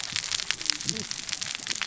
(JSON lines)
{"label": "biophony, cascading saw", "recorder": "SoundTrap 600 or HydroMoth"}